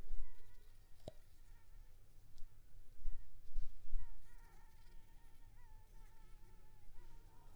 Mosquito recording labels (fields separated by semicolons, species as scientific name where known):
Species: Culex pipiens complex; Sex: female; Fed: unfed; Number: one; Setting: cup